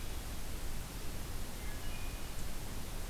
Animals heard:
Wood Thrush (Hylocichla mustelina)

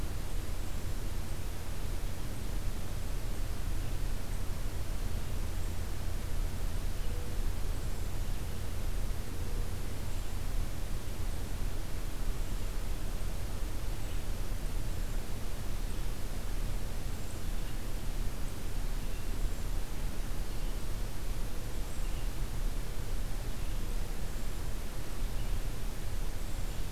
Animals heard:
Red-eyed Vireo (Vireo olivaceus)
Hermit Thrush (Catharus guttatus)

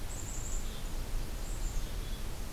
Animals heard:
Black-capped Chickadee (Poecile atricapillus)

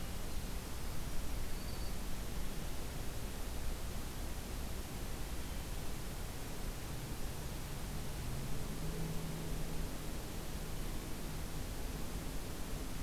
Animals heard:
Black-throated Green Warbler (Setophaga virens)

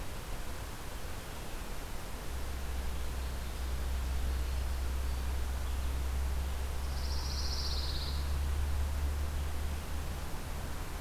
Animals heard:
Pine Warbler (Setophaga pinus)
Winter Wren (Troglodytes hiemalis)

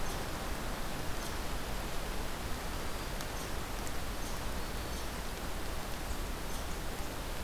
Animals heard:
Black-throated Green Warbler (Setophaga virens)
Red Squirrel (Tamiasciurus hudsonicus)

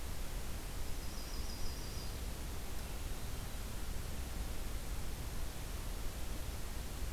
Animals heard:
Yellow-rumped Warbler (Setophaga coronata)

